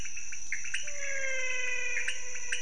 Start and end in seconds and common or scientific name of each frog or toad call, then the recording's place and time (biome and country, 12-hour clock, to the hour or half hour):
0.0	2.6	pointedbelly frog
0.6	2.6	menwig frog
Cerrado, Brazil, 4am